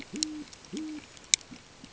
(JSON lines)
{"label": "ambient", "recorder": "HydroMoth"}